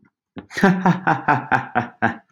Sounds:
Laughter